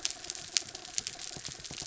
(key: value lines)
label: anthrophony, mechanical
recorder: SoundTrap 300